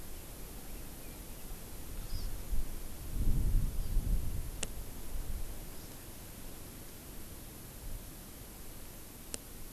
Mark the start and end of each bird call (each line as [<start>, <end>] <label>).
[0.00, 1.90] Red-billed Leiothrix (Leiothrix lutea)
[2.00, 2.40] Hawaii Amakihi (Chlorodrepanis virens)
[5.50, 6.00] Hawaii Amakihi (Chlorodrepanis virens)